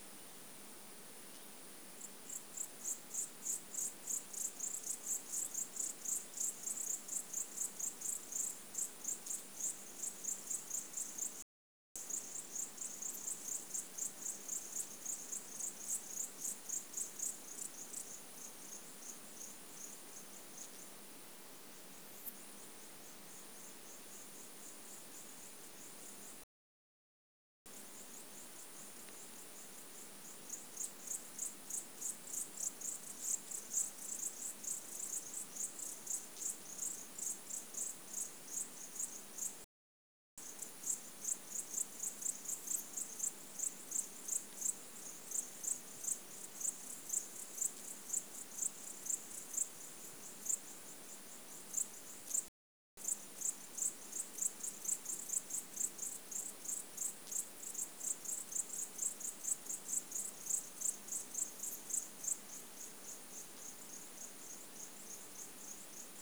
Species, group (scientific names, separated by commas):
Poecilimon thoracicus, Orthoptera